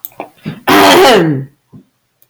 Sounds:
Throat clearing